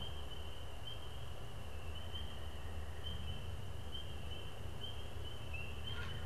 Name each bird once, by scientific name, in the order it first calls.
unidentified bird